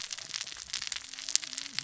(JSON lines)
{"label": "biophony, cascading saw", "recorder": "SoundTrap 600 or HydroMoth"}